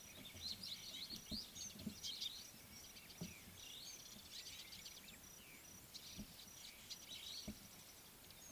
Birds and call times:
Mariqua Sunbird (Cinnyris mariquensis): 0:04.5

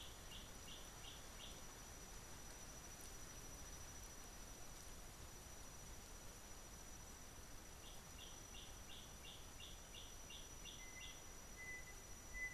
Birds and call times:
Gray Apalis (Apalis cinerea): 0:09.7

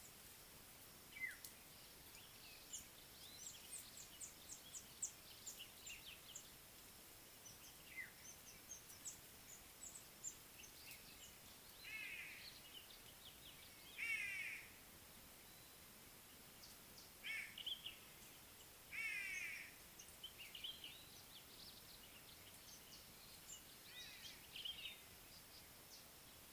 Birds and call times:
African Black-headed Oriole (Oriolus larvatus): 0:01.3, 0:08.1
Speckled Mousebird (Colius striatus): 0:02.8, 0:09.1
White-bellied Go-away-bird (Corythaixoides leucogaster): 0:12.1, 0:19.3
Common Bulbul (Pycnonotus barbatus): 0:17.7, 0:24.7

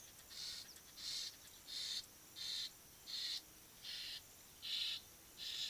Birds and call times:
Egyptian Goose (Alopochen aegyptiaca): 0:03.2

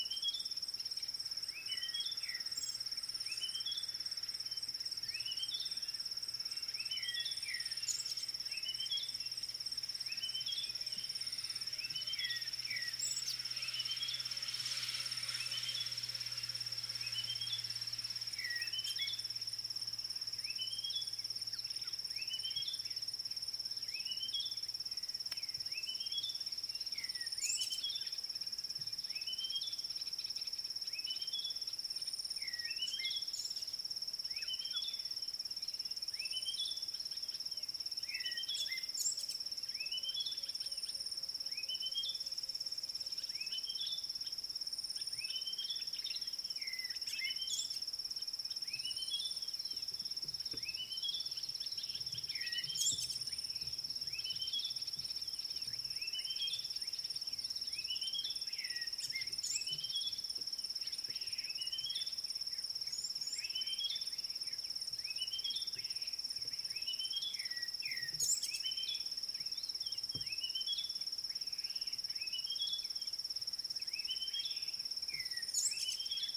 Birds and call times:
Red-backed Scrub-Robin (Cercotrichas leucophrys): 0:01.8, 0:05.3, 0:08.8, 0:13.8, 0:17.3, 0:18.8, 0:22.3, 0:25.9, 0:27.7, 0:31.2, 0:34.6, 0:38.3, 0:41.9, 0:45.5, 0:50.8, 0:56.2, 0:59.8, 1:03.7, 1:07.0, 1:10.5, 1:14.3
African Bare-eyed Thrush (Turdus tephronotus): 0:12.7, 0:18.4, 1:07.5
Red-cheeked Cordonbleu (Uraeginthus bengalus): 1:03.0

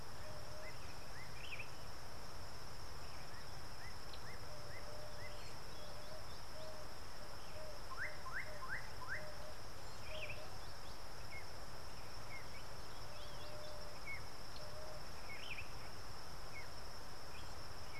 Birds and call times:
Slate-colored Boubou (Laniarius funebris): 0:08.4
Sombre Greenbul (Andropadus importunus): 0:15.5

